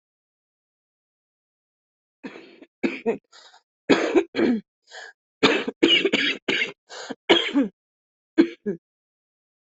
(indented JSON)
{
  "expert_labels": [
    {
      "quality": "good",
      "cough_type": "unknown",
      "dyspnea": false,
      "wheezing": false,
      "stridor": false,
      "choking": false,
      "congestion": false,
      "nothing": true,
      "diagnosis": "lower respiratory tract infection",
      "severity": "unknown"
    }
  ]
}